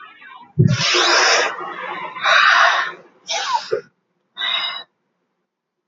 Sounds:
Sigh